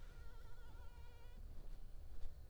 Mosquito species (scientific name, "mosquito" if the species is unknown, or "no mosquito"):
Anopheles arabiensis